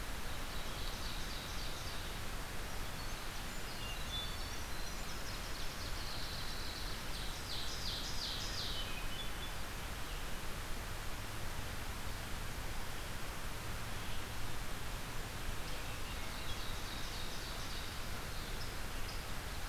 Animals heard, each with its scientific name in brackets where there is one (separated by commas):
Winter Wren (Troglodytes hiemalis), Hermit Thrush (Catharus guttatus), Ovenbird (Seiurus aurocapilla)